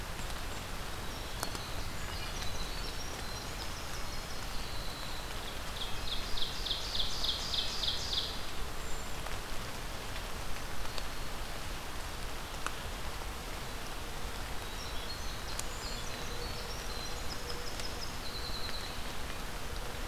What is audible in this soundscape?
Winter Wren, Ovenbird, Brown Creeper, Black-throated Green Warbler